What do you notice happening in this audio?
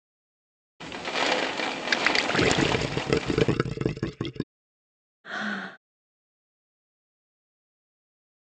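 At 0.8 seconds, there is rain on a surface. Over it, at 1.9 seconds, gurgling is heard. Finally, at 5.24 seconds, you can hear breathing.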